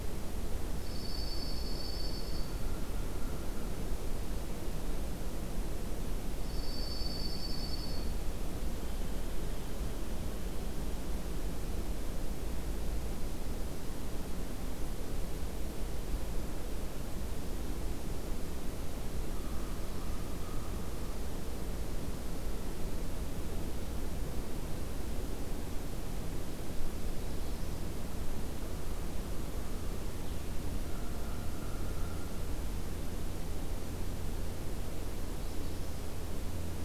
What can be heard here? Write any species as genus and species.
Junco hyemalis, Corvus brachyrhynchos